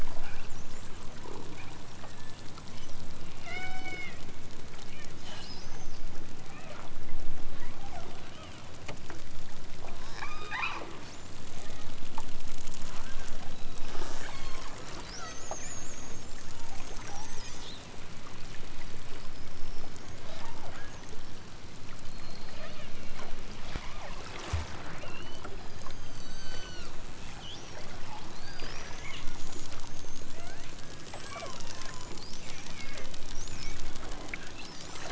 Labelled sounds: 3.4	4.2	killer whale, southern Alaska resident, 0.32 to 7.7 kHz
5.2	6.9	killer whale, southern Alaska resident, 0.55 to 8.0 kHz
7.8	8.7	killer whale, southern Alaska resident, 0.43 to 3.6 kHz
10.0	10.9	killer whale, southern Alaska resident, 0.60 to 6.5 kHz
11.5	12.0	killer whale, southern Alaska resident, 1.5 to 3.9 kHz
12.9	15.5	killer whale, southern Alaska resident, 0.37 to 5.3 kHz
20.2	21.0	killer whale, southern Alaska resident, 0.37 to 5.7 kHz
22.6	23.1	killer whale, southern Alaska resident, 0.99 to 3.9 kHz
23.8	24.2	killer whale, southern Alaska resident, 0.94 to 3.3 kHz
24.9	27.0	killer whale, southern Alaska resident, 0.78 to 8.0 kHz
30.2	30.9	killer whale, southern Alaska resident, 0.32 to 3.4 kHz
31.1	32.3	killer whale, southern Alaska resident, 0.60 to 5.0 kHz
32.8	33.2	killer whale, southern Alaska resident, 0.60 to 3.5 kHz

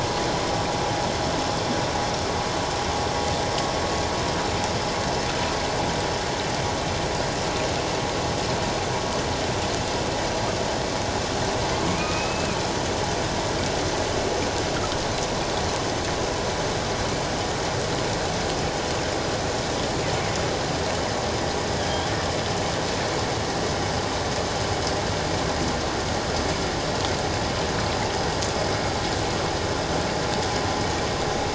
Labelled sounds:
12.0	12.6	humpback whale, 1.2 to 2.7 kHz
21.8	22.1	humpback whale, 3.0 to 3.5 kHz

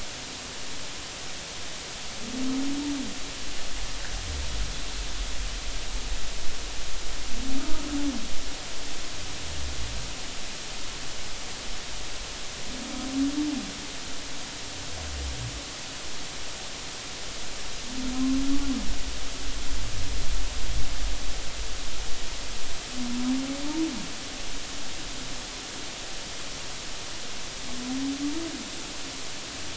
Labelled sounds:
7.5	7.9	humpback whale, 1.2 to 1.5 kHz
18.1	18.4	humpback whale, 0.99 to 1.1 kHz

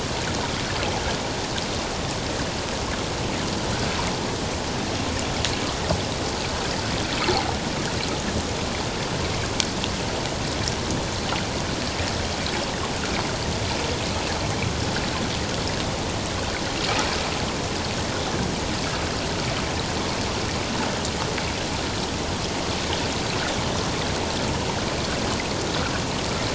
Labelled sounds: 7.3	7.6	water noise, 0.78 to 0.94 kHz

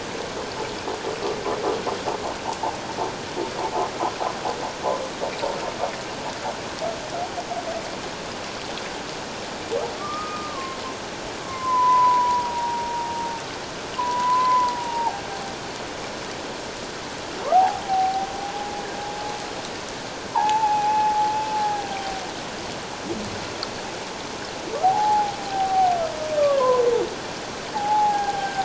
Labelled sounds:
10.0	10.8	humpback whale, 1.0 to 1.3 kHz
11.4	13.1	humpback whale, 0.84 to 2.1 kHz
14.0	15.2	humpback whale, 0.78 to 1.1 kHz
17.5	18.8	humpback whale, 0.78 to 0.97 kHz
20.3	22.2	humpback whale, 0.78 to 2.6 kHz
24.8	26.8	humpback whale, 0.78 to 1.3 kHz
27.7	28.6	humpback whale, 0.78 to 1.7 kHz

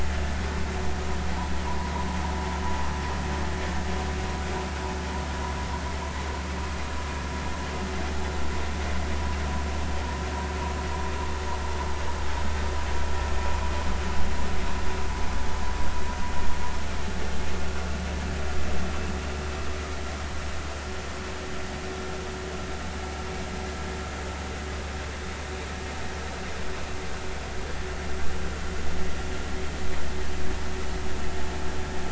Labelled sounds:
1.7	1.9	vessel noise, 0.90 to 1.1 kHz

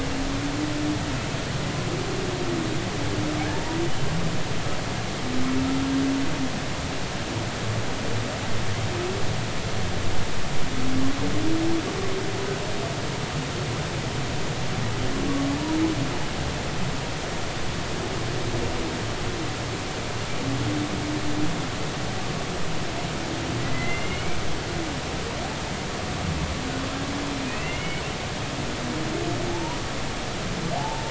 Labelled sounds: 3.5	3.8	humpback whale, 0.83 to 0.99 kHz
23.6	24.4	humpback whale, 1.9 to 2.9 kHz
27.5	28.0	humpback whale, 1.9 to 3.0 kHz
29.5	29.8	humpback whale, 0.80 to 1.0 kHz
30.7	31.0	humpback whale, 0.80 to 1.0 kHz

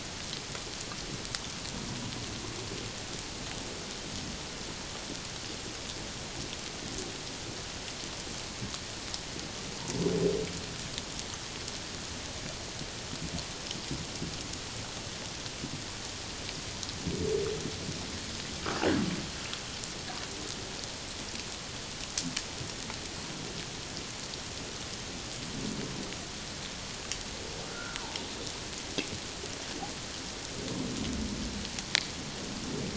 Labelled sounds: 27.7	28.0	humpback whale, 1.3 to 1.6 kHz

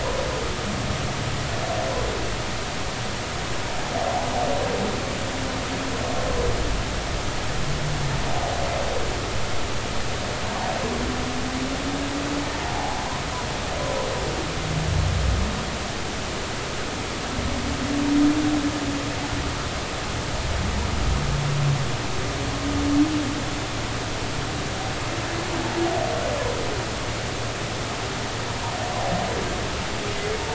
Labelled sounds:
12.6	13.0	humpback whale, 0.80 to 0.96 kHz

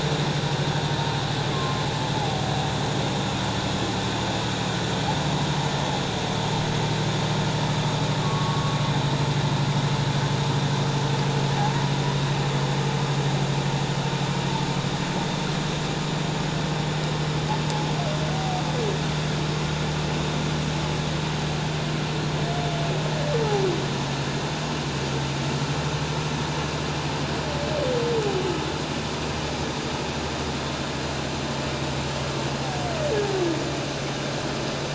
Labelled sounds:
1.5	2.4	humpback whale, 0.78 to 1.1 kHz
8.2	8.8	humpback whale, 1.1 to 1.2 kHz

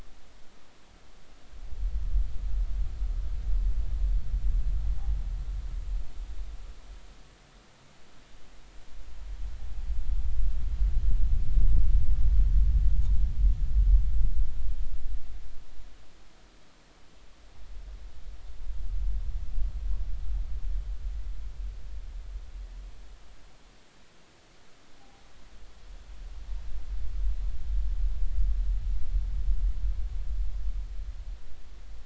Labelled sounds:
25.0	25.2	noise likely from the mooring, 0.80 to 0.86 kHz

